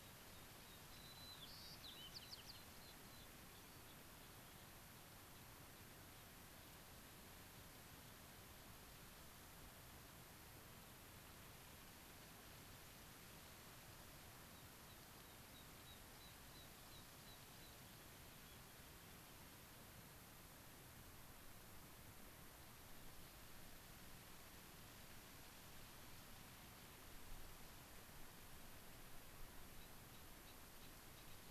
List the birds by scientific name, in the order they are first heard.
Anthus rubescens, Zonotrichia leucophrys